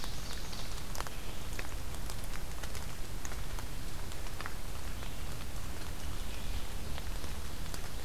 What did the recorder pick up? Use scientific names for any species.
Seiurus aurocapilla, Vireo olivaceus